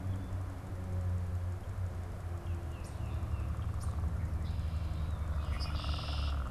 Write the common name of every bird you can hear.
Tufted Titmouse, European Starling, Red-winged Blackbird